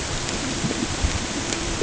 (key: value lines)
label: ambient
recorder: HydroMoth